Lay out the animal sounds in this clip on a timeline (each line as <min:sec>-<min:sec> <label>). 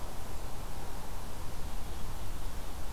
0:01.4-0:02.9 Ovenbird (Seiurus aurocapilla)